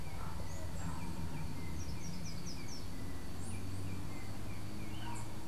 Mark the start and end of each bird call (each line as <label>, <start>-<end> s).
Slate-throated Redstart (Myioborus miniatus), 1.6-3.0 s
Yellow-backed Oriole (Icterus chrysater), 3.4-5.5 s